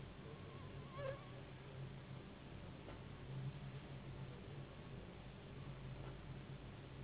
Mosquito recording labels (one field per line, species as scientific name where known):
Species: Anopheles gambiae s.s.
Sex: female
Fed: unfed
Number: one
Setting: insect culture